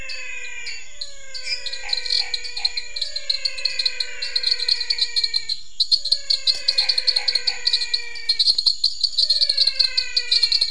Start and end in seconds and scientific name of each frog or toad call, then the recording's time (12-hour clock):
0.0	10.7	Dendropsophus nanus
0.0	10.7	Physalaemus albonotatus
1.7	2.8	Boana raniceps
7:45pm